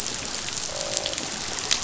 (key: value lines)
label: biophony, croak
recorder: SoundTrap 500